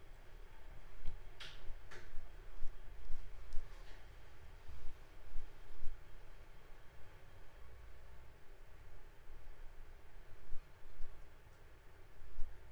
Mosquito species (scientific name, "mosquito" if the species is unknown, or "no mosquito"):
Culex pipiens complex